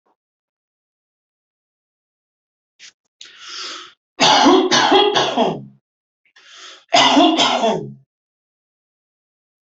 {"expert_labels": [{"quality": "good", "cough_type": "dry", "dyspnea": false, "wheezing": false, "stridor": false, "choking": false, "congestion": false, "nothing": true, "diagnosis": "COVID-19", "severity": "mild"}], "age": 34, "gender": "male", "respiratory_condition": false, "fever_muscle_pain": false, "status": "healthy"}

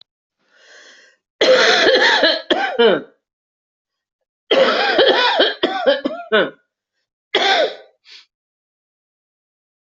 {"expert_labels": [{"quality": "good", "cough_type": "dry", "dyspnea": false, "wheezing": false, "stridor": false, "choking": false, "congestion": false, "nothing": true, "diagnosis": "COVID-19", "severity": "severe"}], "gender": "female", "respiratory_condition": false, "fever_muscle_pain": false, "status": "COVID-19"}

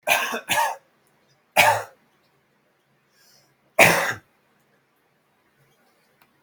{"expert_labels": [{"quality": "ok", "cough_type": "dry", "dyspnea": false, "wheezing": false, "stridor": false, "choking": false, "congestion": false, "nothing": true, "diagnosis": "healthy cough", "severity": "pseudocough/healthy cough"}], "age": 25, "gender": "male", "respiratory_condition": false, "fever_muscle_pain": false, "status": "healthy"}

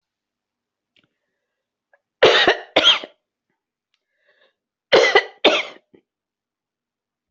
{"expert_labels": [{"quality": "ok", "cough_type": "dry", "dyspnea": false, "wheezing": true, "stridor": false, "choking": false, "congestion": false, "nothing": false, "diagnosis": "COVID-19", "severity": "mild"}], "age": 77, "gender": "female", "respiratory_condition": true, "fever_muscle_pain": false, "status": "healthy"}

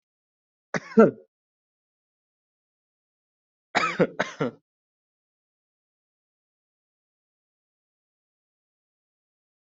{"expert_labels": [{"quality": "ok", "cough_type": "dry", "dyspnea": false, "wheezing": false, "stridor": false, "choking": false, "congestion": false, "nothing": true, "diagnosis": "healthy cough", "severity": "pseudocough/healthy cough"}], "gender": "female", "respiratory_condition": true, "fever_muscle_pain": true, "status": "COVID-19"}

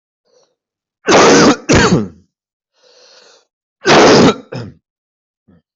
{"expert_labels": [{"quality": "poor", "cough_type": "wet", "dyspnea": false, "wheezing": false, "stridor": false, "choking": false, "congestion": false, "nothing": true, "diagnosis": "lower respiratory tract infection", "severity": "mild"}, {"quality": "good", "cough_type": "unknown", "dyspnea": false, "wheezing": false, "stridor": false, "choking": false, "congestion": false, "nothing": true, "diagnosis": "upper respiratory tract infection", "severity": "unknown"}, {"quality": "good", "cough_type": "wet", "dyspnea": false, "wheezing": false, "stridor": false, "choking": false, "congestion": false, "nothing": true, "diagnosis": "lower respiratory tract infection", "severity": "mild"}, {"quality": "ok", "cough_type": "wet", "dyspnea": false, "wheezing": false, "stridor": false, "choking": false, "congestion": false, "nothing": true, "diagnosis": "lower respiratory tract infection", "severity": "mild"}], "age": 44, "gender": "male", "respiratory_condition": true, "fever_muscle_pain": false, "status": "symptomatic"}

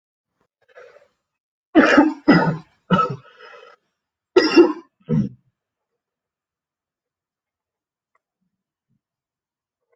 {"expert_labels": [{"quality": "poor", "cough_type": "unknown", "dyspnea": false, "wheezing": false, "stridor": false, "choking": false, "congestion": false, "nothing": true, "diagnosis": "lower respiratory tract infection", "severity": "unknown"}], "age": 27, "gender": "male", "respiratory_condition": true, "fever_muscle_pain": false, "status": "symptomatic"}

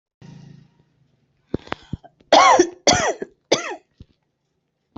{"expert_labels": [{"quality": "good", "cough_type": "dry", "dyspnea": false, "wheezing": false, "stridor": false, "choking": false, "congestion": false, "nothing": true, "diagnosis": "upper respiratory tract infection", "severity": "mild"}], "age": 40, "gender": "female", "respiratory_condition": false, "fever_muscle_pain": false, "status": "healthy"}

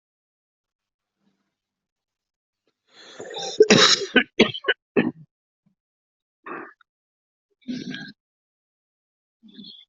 {"expert_labels": [{"quality": "poor", "cough_type": "unknown", "dyspnea": false, "wheezing": false, "stridor": false, "choking": false, "congestion": false, "nothing": true, "diagnosis": "lower respiratory tract infection", "severity": "mild"}], "age": 47, "gender": "male", "respiratory_condition": true, "fever_muscle_pain": false, "status": "COVID-19"}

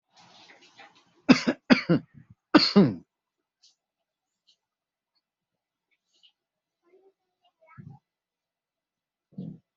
{"expert_labels": [{"quality": "ok", "cough_type": "dry", "dyspnea": false, "wheezing": false, "stridor": false, "choking": false, "congestion": false, "nothing": true, "diagnosis": "lower respiratory tract infection", "severity": "mild"}]}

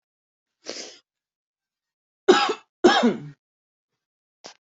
{"expert_labels": [{"quality": "ok", "cough_type": "dry", "dyspnea": false, "wheezing": false, "stridor": false, "choking": false, "congestion": false, "nothing": true, "diagnosis": "lower respiratory tract infection", "severity": "mild"}], "age": 38, "gender": "female", "respiratory_condition": false, "fever_muscle_pain": false, "status": "symptomatic"}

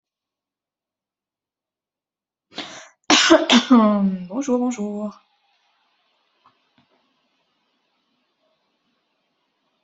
{"expert_labels": [{"quality": "good", "cough_type": "dry", "dyspnea": false, "wheezing": false, "stridor": false, "choking": false, "congestion": false, "nothing": true, "diagnosis": "healthy cough", "severity": "pseudocough/healthy cough"}], "age": 39, "gender": "female", "respiratory_condition": false, "fever_muscle_pain": false, "status": "symptomatic"}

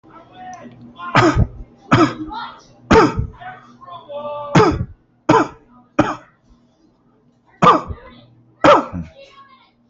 {"expert_labels": [{"quality": "good", "cough_type": "dry", "dyspnea": false, "wheezing": false, "stridor": false, "choking": false, "congestion": false, "nothing": true, "diagnosis": "COVID-19", "severity": "mild"}], "age": 44, "gender": "male", "respiratory_condition": true, "fever_muscle_pain": false, "status": "symptomatic"}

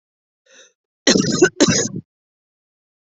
{"expert_labels": [{"quality": "ok", "cough_type": "unknown", "dyspnea": false, "wheezing": false, "stridor": false, "choking": false, "congestion": false, "nothing": false, "severity": "unknown"}], "age": 40, "gender": "female", "respiratory_condition": false, "fever_muscle_pain": false, "status": "healthy"}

